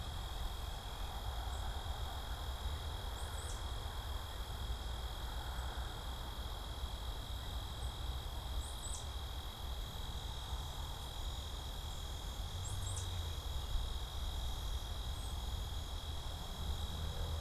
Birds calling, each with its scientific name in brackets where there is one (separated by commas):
Tufted Titmouse (Baeolophus bicolor)